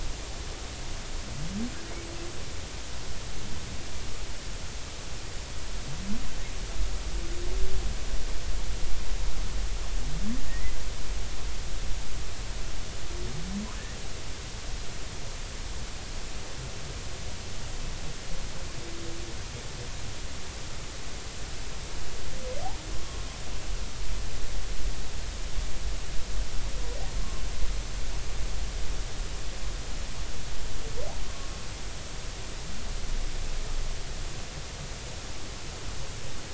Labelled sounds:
10.5	10.8	humpback whale, 1.8 to 2.1 kHz
23.0	23.2	humpback whale, 1.06 to 1.12 kHz

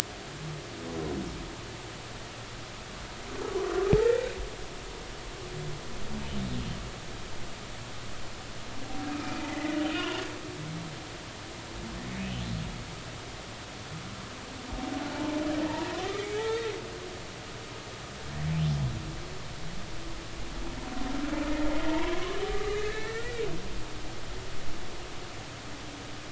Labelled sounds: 4.0	4.3	humpback whale, 1.7 to 2.0 kHz
9.4	10.2	humpback whale, 1.9 to 3.0 kHz
15.1	15.4	humpback whale, 0.83 to 0.93 kHz
15.7	16.4	humpback whale, 0.86 to 2.3 kHz
21.9	23.4	humpback whale, 0.86 to 2.7 kHz

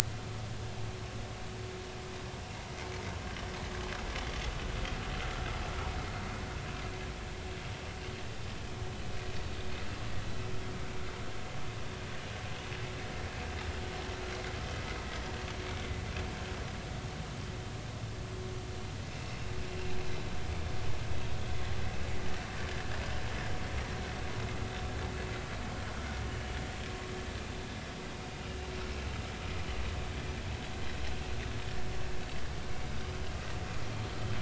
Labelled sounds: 19.1	19.4	vessel noise, 2.5 to 2.8 kHz
28.4	28.7	vessel noise, 2.7 to 2.9 kHz

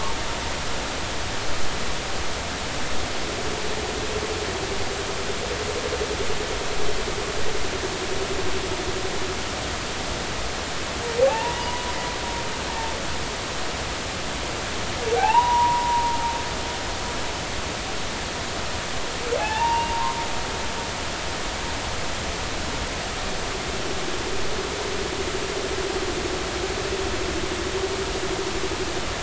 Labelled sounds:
11.3	12.0	humpback whale, 0.80 to 1.0 kHz
15.2	16.2	humpback whale, 0.80 to 2.9 kHz
19.4	20.2	humpback whale, 0.80 to 2.8 kHz

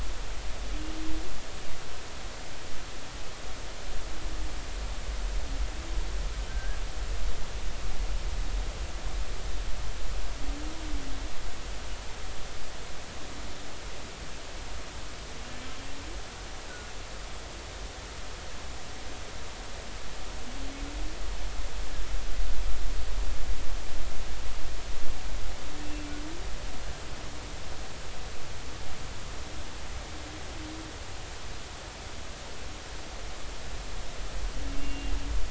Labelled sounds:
6.4	6.8	humpback whale, 1.5 to 1.7 kHz
25.8	26.1	humpback whale, 2.6 to 2.8 kHz
34.8	35.1	humpback whale, 2.6 to 2.8 kHz

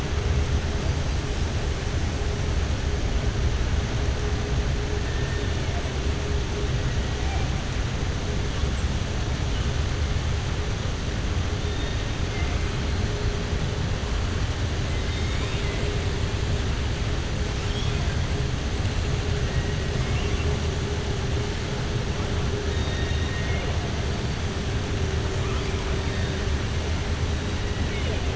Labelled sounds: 14.9	15.8	killer whale, southern resident, 2.0 to 7.4 kHz
22.7	23.7	killer whale, southern resident, 1.8 to 4.7 kHz

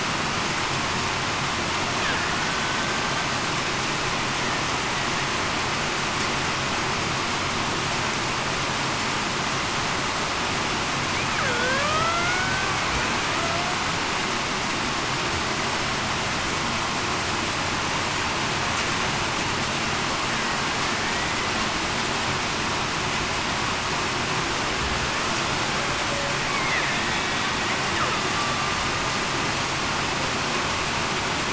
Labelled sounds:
11.4	12.5	killer whale, Bigg's (transient), 1.4 to 2.3 kHz
13.4	13.7	killer whale, Bigg's (transient), 0.66 to 0.75 kHz
28.3	28.7	killer whale, Bigg's (transient), 1.1 to 1.2 kHz

